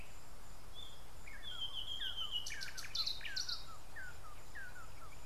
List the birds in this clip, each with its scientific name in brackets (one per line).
Red-and-yellow Barbet (Trachyphonus erythrocephalus)